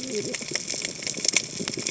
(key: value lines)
label: biophony, cascading saw
recorder: HydroMoth